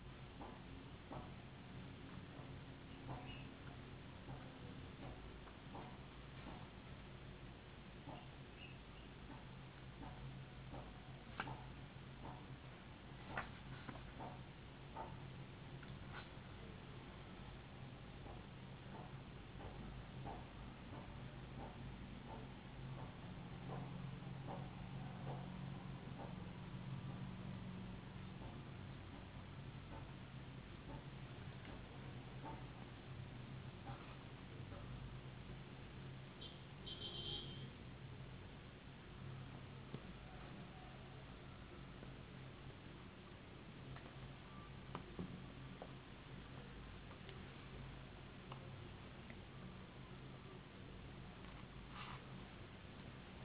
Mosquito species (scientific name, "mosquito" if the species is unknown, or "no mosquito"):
no mosquito